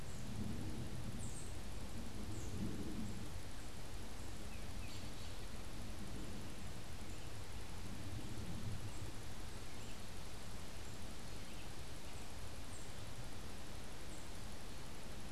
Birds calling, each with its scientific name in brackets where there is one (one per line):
Tufted Titmouse (Baeolophus bicolor)
American Robin (Turdus migratorius)